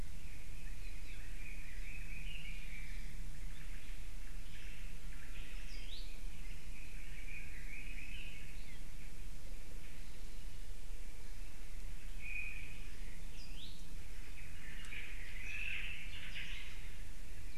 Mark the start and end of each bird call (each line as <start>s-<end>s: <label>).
0.0s-3.1s: Red-billed Leiothrix (Leiothrix lutea)
0.8s-1.9s: Apapane (Himatione sanguinea)
3.3s-6.6s: Omao (Myadestes obscurus)
3.5s-3.6s: Apapane (Himatione sanguinea)
5.5s-5.9s: Apapane (Himatione sanguinea)
5.7s-6.0s: Iiwi (Drepanis coccinea)
6.6s-8.5s: Red-billed Leiothrix (Leiothrix lutea)
8.6s-8.8s: Apapane (Himatione sanguinea)
12.1s-12.9s: Omao (Myadestes obscurus)
13.3s-13.5s: Apapane (Himatione sanguinea)
13.4s-13.7s: Iiwi (Drepanis coccinea)
14.3s-17.0s: Omao (Myadestes obscurus)